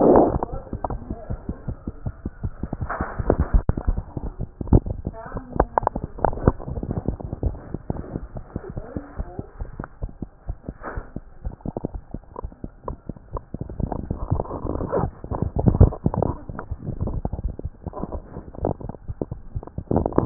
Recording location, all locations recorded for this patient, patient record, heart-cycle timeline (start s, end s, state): tricuspid valve (TV)
aortic valve (AV)+pulmonary valve (PV)+tricuspid valve (TV)+mitral valve (MV)
#Age: Infant
#Sex: Female
#Height: 67.0 cm
#Weight: 9.46 kg
#Pregnancy status: False
#Murmur: Absent
#Murmur locations: nan
#Most audible location: nan
#Systolic murmur timing: nan
#Systolic murmur shape: nan
#Systolic murmur grading: nan
#Systolic murmur pitch: nan
#Systolic murmur quality: nan
#Diastolic murmur timing: nan
#Diastolic murmur shape: nan
#Diastolic murmur grading: nan
#Diastolic murmur pitch: nan
#Diastolic murmur quality: nan
#Outcome: Abnormal
#Campaign: 2015 screening campaign
0.00	8.75	unannotated
8.75	8.82	S1
8.82	8.93	systole
8.93	9.00	S2
9.00	9.17	diastole
9.17	9.24	S1
9.24	9.37	systole
9.37	9.42	S2
9.42	9.58	diastole
9.58	9.64	S1
9.64	9.77	systole
9.77	9.83	S2
9.83	10.01	diastole
10.01	10.10	S1
10.10	10.20	systole
10.20	10.26	S2
10.26	10.46	diastole
10.46	10.54	S1
10.54	10.66	systole
10.66	10.74	S2
10.74	10.94	diastole
10.94	11.02	S1
11.02	11.14	systole
11.14	11.20	S2
11.20	11.43	diastole
11.43	11.51	S1
11.51	11.65	systole
11.65	11.71	S2
11.71	11.92	diastole
11.92	12.00	S1
12.00	12.12	systole
12.12	12.18	S2
12.18	12.42	diastole
12.42	12.48	S1
12.48	12.63	systole
12.63	12.69	S2
12.69	12.86	diastole
12.86	12.95	S1
12.95	13.06	systole
13.06	13.13	S2
13.13	13.33	diastole
13.33	20.26	unannotated